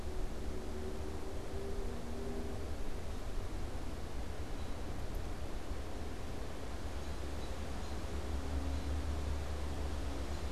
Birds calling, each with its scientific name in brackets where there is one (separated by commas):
American Robin (Turdus migratorius)